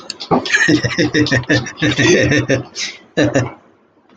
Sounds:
Laughter